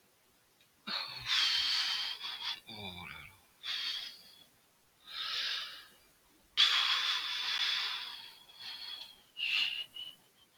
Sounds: Sigh